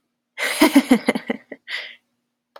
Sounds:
Laughter